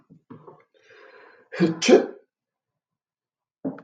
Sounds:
Sneeze